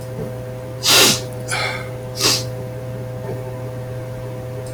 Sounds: Sniff